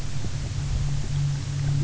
{"label": "anthrophony, boat engine", "recorder": "SoundTrap 300"}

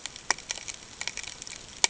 {"label": "ambient", "recorder": "HydroMoth"}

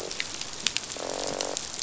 {"label": "biophony, croak", "recorder": "SoundTrap 500"}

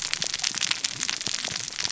{"label": "biophony, cascading saw", "recorder": "SoundTrap 600 or HydroMoth"}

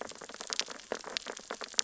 {"label": "biophony, sea urchins (Echinidae)", "recorder": "SoundTrap 600 or HydroMoth"}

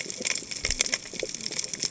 {"label": "biophony, cascading saw", "recorder": "HydroMoth"}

